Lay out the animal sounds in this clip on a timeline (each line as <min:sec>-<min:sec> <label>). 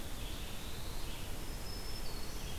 0:00.0-0:01.1 Black-throated Blue Warbler (Setophaga caerulescens)
0:00.0-0:02.6 Red-eyed Vireo (Vireo olivaceus)
0:01.4-0:02.6 Black-throated Green Warbler (Setophaga virens)